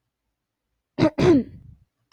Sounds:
Throat clearing